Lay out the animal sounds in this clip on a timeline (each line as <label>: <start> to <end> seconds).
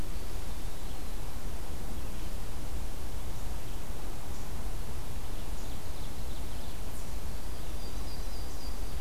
Eastern Wood-Pewee (Contopus virens): 0.0 to 1.1 seconds
Ovenbird (Seiurus aurocapilla): 4.9 to 6.9 seconds
Yellow-rumped Warbler (Setophaga coronata): 7.6 to 9.0 seconds